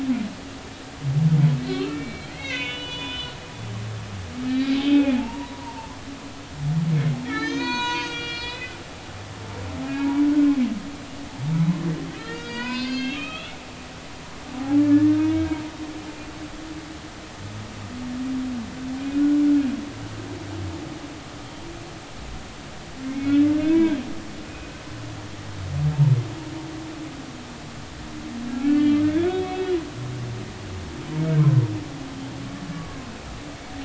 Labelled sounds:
1.7	3.5	humpback whale, 0.93 to 4.5 kHz
4.5	5.9	humpback whale, 0.80 to 2.6 kHz
7.2	8.8	humpback whale, 0.90 to 6.8 kHz
9.9	10.2	humpback whale, 0.80 to 1.7 kHz
12.2	13.5	humpback whale, 0.93 to 6.5 kHz
14.6	15.6	humpback whale, 0.80 to 1.9 kHz
19.1	19.4	humpback whale, 1.4 to 1.5 kHz
23.0	24.0	humpback whale, 0.86 to 2.7 kHz
28.5	29.7	humpback whale, 1.3 to 3.5 kHz
30.4	31.6	humpback whale, 0.99 to 2.7 kHz

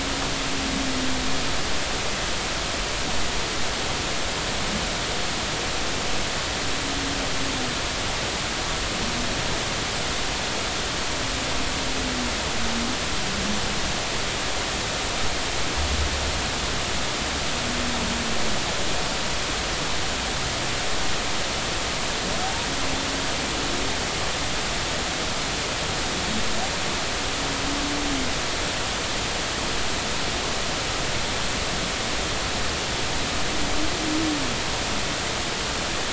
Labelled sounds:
22.4	22.7	humpback whale, 0.80 to 0.99 kHz

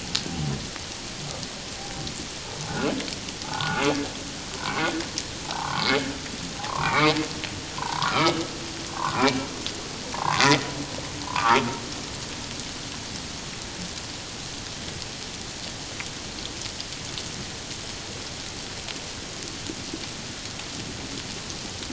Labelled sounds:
3.4	3.8	humpback whale, 0.78 to 1.5 kHz
4.6	4.8	humpback whale, 0.91 to 1.2 kHz
5.4	6.1	humpback whale, 0.78 to 2.3 kHz
6.6	7.1	humpback whale, 0.78 to 2.5 kHz
7.8	9.3	humpback whale, 0.78 to 1.6 kHz
10.1	10.5	humpback whale, 0.78 to 1.2 kHz
11.3	11.7	humpback whale, 0.78 to 1.6 kHz

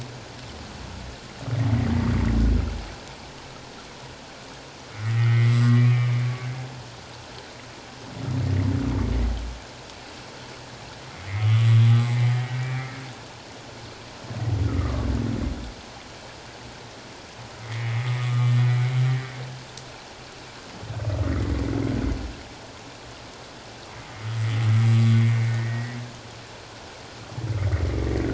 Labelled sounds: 4.9	6.8	humpback whale, 1.1 to 2.4 kHz
11.1	12.9	humpback whale, 1.1 to 2.4 kHz
14.6	15.1	humpback whale, 1.1 to 1.5 kHz
17.6	18.5	humpback whale, 1.1 to 2.2 kHz
24.9	26.0	humpback whale, 1.1 to 2.3 kHz
27.5	27.8	humpback whale, 1.8 to 2.3 kHz

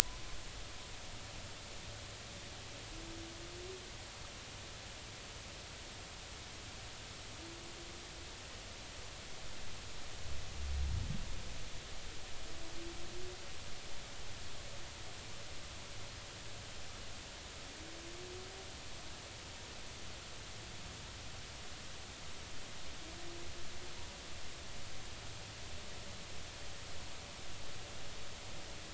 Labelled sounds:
1.0	1.2	humpback whale, 0.96 to 1.1 kHz

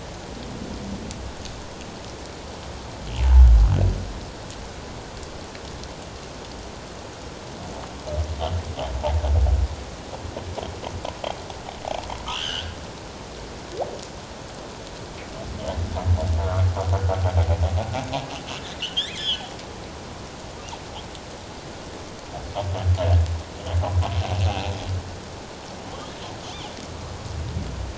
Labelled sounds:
12.3	12.8	humpback whale, 1.3 to 3.5 kHz
18.8	19.4	humpback whale, 2.6 to 4.1 kHz

